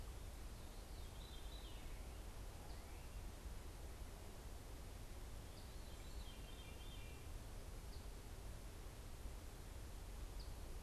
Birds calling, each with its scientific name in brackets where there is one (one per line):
Veery (Catharus fuscescens)
Eastern Phoebe (Sayornis phoebe)